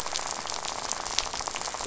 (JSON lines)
{"label": "biophony, rattle", "recorder": "SoundTrap 500"}